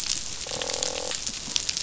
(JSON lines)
{"label": "biophony, croak", "recorder": "SoundTrap 500"}